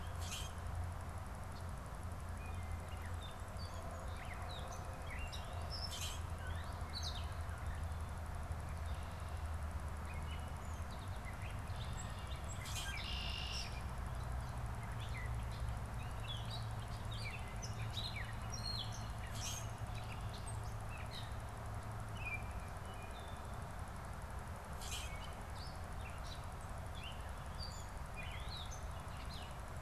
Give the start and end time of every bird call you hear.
[0.00, 0.80] Common Grackle (Quiscalus quiscula)
[2.80, 7.70] Gray Catbird (Dumetella carolinensis)
[5.80, 6.40] Common Grackle (Quiscalus quiscula)
[10.00, 29.80] Gray Catbird (Dumetella carolinensis)
[12.50, 13.00] Common Grackle (Quiscalus quiscula)
[12.80, 13.90] Red-winged Blackbird (Agelaius phoeniceus)
[19.20, 19.90] Common Grackle (Quiscalus quiscula)
[24.60, 25.40] Common Grackle (Quiscalus quiscula)

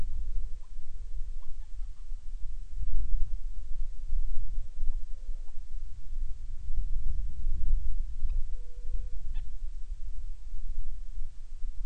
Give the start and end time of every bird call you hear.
[0.10, 2.20] Hawaiian Petrel (Pterodroma sandwichensis)
[4.20, 5.70] Hawaiian Petrel (Pterodroma sandwichensis)
[8.00, 9.60] Hawaiian Petrel (Pterodroma sandwichensis)

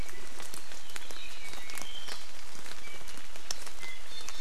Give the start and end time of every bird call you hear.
[4.01, 4.40] Iiwi (Drepanis coccinea)

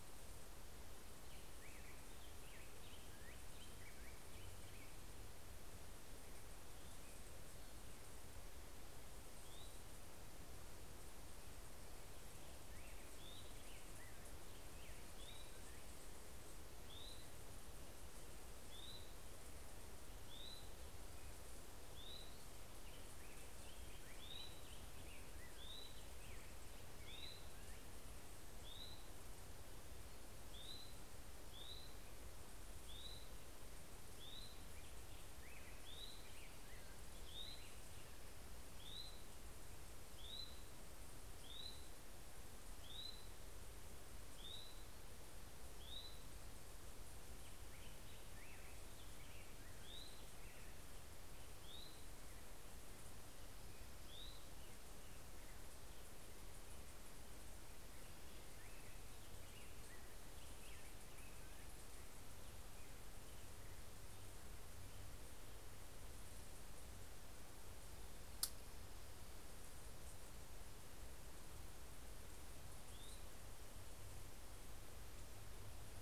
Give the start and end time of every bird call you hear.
[1.24, 4.64] Black-headed Grosbeak (Pheucticus melanocephalus)
[9.24, 54.74] Hermit Thrush (Catharus guttatus)
[12.24, 16.14] Black-headed Grosbeak (Pheucticus melanocephalus)
[22.44, 27.54] Black-headed Grosbeak (Pheucticus melanocephalus)
[34.34, 37.94] Black-headed Grosbeak (Pheucticus melanocephalus)
[47.54, 51.64] Black-headed Grosbeak (Pheucticus melanocephalus)
[72.34, 73.64] Hermit Thrush (Catharus guttatus)

